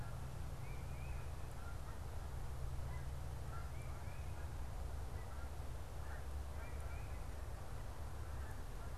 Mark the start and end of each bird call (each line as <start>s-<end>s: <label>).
0.0s-9.0s: Canada Goose (Branta canadensis)
0.5s-1.3s: Tufted Titmouse (Baeolophus bicolor)
3.5s-4.4s: Tufted Titmouse (Baeolophus bicolor)
6.6s-7.2s: Tufted Titmouse (Baeolophus bicolor)